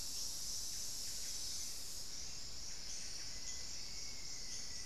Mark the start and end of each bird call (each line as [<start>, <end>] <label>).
[0.00, 4.85] unidentified bird
[0.46, 4.85] Buff-breasted Wren (Cantorchilus leucotis)
[0.86, 3.16] Olivaceous Woodcreeper (Sittasomus griseicapillus)
[2.96, 4.85] Black-faced Antthrush (Formicarius analis)